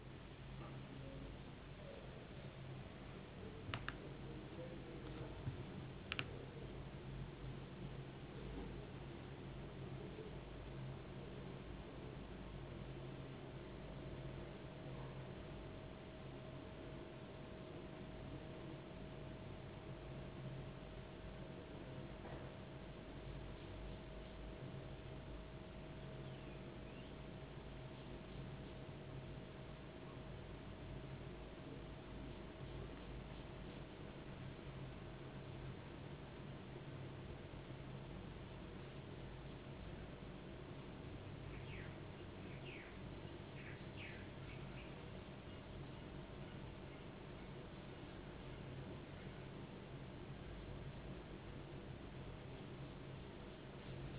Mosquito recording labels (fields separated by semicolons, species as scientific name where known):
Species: no mosquito; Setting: insect culture